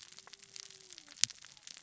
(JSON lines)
{"label": "biophony, cascading saw", "recorder": "SoundTrap 600 or HydroMoth"}